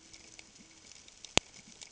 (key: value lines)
label: ambient
recorder: HydroMoth